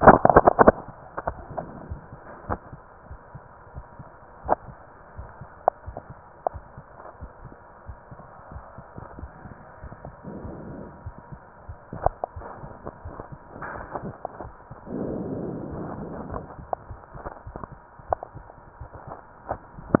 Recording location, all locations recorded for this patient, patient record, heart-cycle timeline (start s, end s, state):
aortic valve (AV)
aortic valve (AV)+pulmonary valve (PV)+tricuspid valve (TV)+mitral valve (MV)
#Age: Child
#Sex: Female
#Height: 146.0 cm
#Weight: 44.3 kg
#Pregnancy status: False
#Murmur: Absent
#Murmur locations: nan
#Most audible location: nan
#Systolic murmur timing: nan
#Systolic murmur shape: nan
#Systolic murmur grading: nan
#Systolic murmur pitch: nan
#Systolic murmur quality: nan
#Diastolic murmur timing: nan
#Diastolic murmur shape: nan
#Diastolic murmur grading: nan
#Diastolic murmur pitch: nan
#Diastolic murmur quality: nan
#Outcome: Normal
#Campaign: 2015 screening campaign
0.00	2.48	unannotated
2.48	2.62	S1
2.62	2.70	systole
2.70	2.80	S2
2.80	3.08	diastole
3.08	3.22	S1
3.22	3.32	systole
3.32	3.44	S2
3.44	3.76	diastole
3.76	3.86	S1
3.86	3.98	systole
3.98	4.10	S2
4.10	4.44	diastole
4.44	4.58	S1
4.58	4.68	systole
4.68	4.78	S2
4.78	5.14	diastole
5.14	5.28	S1
5.28	5.38	systole
5.38	5.48	S2
5.48	5.82	diastole
5.82	5.96	S1
5.96	6.08	systole
6.08	6.18	S2
6.18	6.52	diastole
6.52	6.64	S1
6.64	6.76	systole
6.76	6.86	S2
6.86	7.18	diastole
7.18	7.30	S1
7.30	7.40	systole
7.40	7.50	S2
7.50	7.84	diastole
7.84	7.98	S1
7.98	8.10	systole
8.10	8.20	S2
8.20	8.50	diastole
8.50	8.64	S1
8.64	8.76	systole
8.76	8.86	S2
8.86	9.14	diastole
9.14	9.30	S1
9.30	9.40	systole
9.40	9.50	S2
9.50	9.82	diastole
9.82	9.96	S1
9.96	10.04	systole
10.04	10.14	S2
10.14	10.40	diastole
10.40	10.58	S1
10.58	10.66	systole
10.66	10.80	S2
10.80	11.02	diastole
11.02	11.16	S1
11.16	11.28	systole
11.28	11.40	S2
11.40	11.66	diastole
11.66	11.78	S1
11.78	20.00	unannotated